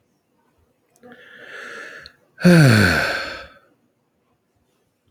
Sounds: Sigh